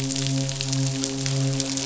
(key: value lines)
label: biophony, midshipman
recorder: SoundTrap 500